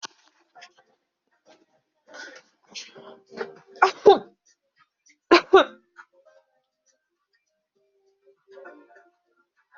{"expert_labels": [{"quality": "poor", "cough_type": "dry", "dyspnea": false, "wheezing": false, "stridor": false, "choking": false, "congestion": false, "nothing": true, "diagnosis": "healthy cough", "severity": "pseudocough/healthy cough"}], "age": 22, "gender": "female", "respiratory_condition": false, "fever_muscle_pain": false, "status": "COVID-19"}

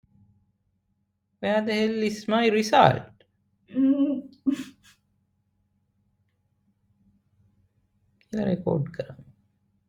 {"expert_labels": [{"quality": "no cough present", "cough_type": "unknown", "dyspnea": false, "wheezing": false, "stridor": false, "choking": false, "congestion": false, "nothing": true, "diagnosis": "healthy cough", "severity": "pseudocough/healthy cough"}]}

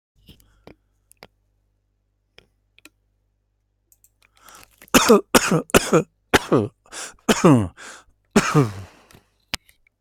{"expert_labels": [{"quality": "good", "cough_type": "dry", "dyspnea": false, "wheezing": false, "stridor": false, "choking": false, "congestion": false, "nothing": true, "diagnosis": "upper respiratory tract infection", "severity": "mild"}], "age": 53, "gender": "male", "respiratory_condition": true, "fever_muscle_pain": false, "status": "COVID-19"}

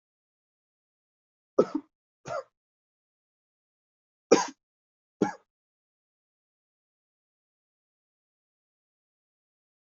{"expert_labels": [{"quality": "good", "cough_type": "dry", "dyspnea": false, "wheezing": false, "stridor": false, "choking": false, "congestion": false, "nothing": true, "diagnosis": "COVID-19", "severity": "mild"}]}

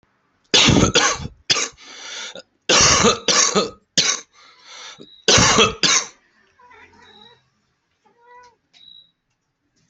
{"expert_labels": [{"quality": "ok", "cough_type": "wet", "dyspnea": false, "wheezing": false, "stridor": false, "choking": false, "congestion": false, "nothing": false, "diagnosis": "lower respiratory tract infection", "severity": "severe"}, {"quality": "ok", "cough_type": "wet", "dyspnea": false, "wheezing": false, "stridor": false, "choking": false, "congestion": false, "nothing": true, "diagnosis": "lower respiratory tract infection", "severity": "mild"}, {"quality": "good", "cough_type": "wet", "dyspnea": false, "wheezing": false, "stridor": false, "choking": false, "congestion": false, "nothing": true, "diagnosis": "upper respiratory tract infection", "severity": "severe"}, {"quality": "good", "cough_type": "wet", "dyspnea": false, "wheezing": false, "stridor": false, "choking": false, "congestion": false, "nothing": true, "diagnosis": "lower respiratory tract infection", "severity": "mild"}], "age": 46, "gender": "male", "respiratory_condition": false, "fever_muscle_pain": false, "status": "symptomatic"}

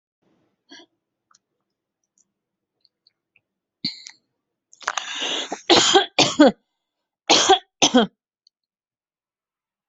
{"expert_labels": [{"quality": "good", "cough_type": "unknown", "dyspnea": false, "wheezing": false, "stridor": false, "choking": false, "congestion": false, "nothing": true, "diagnosis": "healthy cough", "severity": "pseudocough/healthy cough"}], "age": 30, "gender": "female", "respiratory_condition": false, "fever_muscle_pain": false, "status": "symptomatic"}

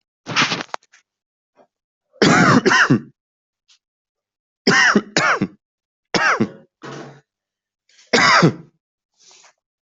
{"expert_labels": [{"quality": "good", "cough_type": "dry", "dyspnea": false, "wheezing": false, "stridor": false, "choking": false, "congestion": false, "nothing": true, "diagnosis": "upper respiratory tract infection", "severity": "mild"}], "age": 36, "gender": "male", "respiratory_condition": false, "fever_muscle_pain": false, "status": "COVID-19"}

